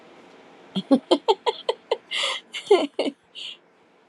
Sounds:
Laughter